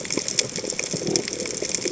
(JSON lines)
{"label": "biophony", "recorder": "HydroMoth"}